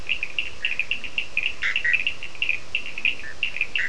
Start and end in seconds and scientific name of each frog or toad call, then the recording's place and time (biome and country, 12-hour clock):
0.0	3.5	Leptodactylus latrans
0.0	3.8	Sphaenorhynchus surdus
1.5	2.2	Boana bischoffi
Atlantic Forest, Brazil, 4:30am